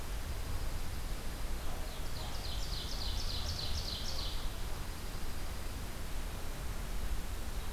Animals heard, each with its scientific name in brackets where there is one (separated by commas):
Dark-eyed Junco (Junco hyemalis), Ovenbird (Seiurus aurocapilla)